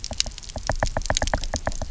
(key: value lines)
label: biophony, knock
recorder: SoundTrap 300